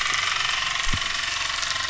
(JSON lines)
{"label": "anthrophony, boat engine", "recorder": "SoundTrap 300"}